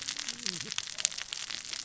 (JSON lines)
{"label": "biophony, cascading saw", "recorder": "SoundTrap 600 or HydroMoth"}